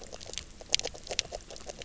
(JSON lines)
{"label": "biophony, knock croak", "recorder": "SoundTrap 300"}